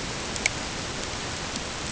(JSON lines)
{"label": "ambient", "recorder": "HydroMoth"}